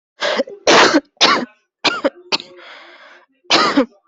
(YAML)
expert_labels:
- quality: good
  cough_type: wet
  dyspnea: false
  wheezing: false
  stridor: false
  choking: false
  congestion: false
  nothing: true
  diagnosis: lower respiratory tract infection
  severity: mild
age: 23
gender: female
respiratory_condition: false
fever_muscle_pain: false
status: COVID-19